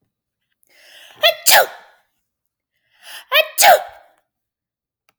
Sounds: Sneeze